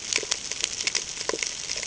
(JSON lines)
{"label": "ambient", "recorder": "HydroMoth"}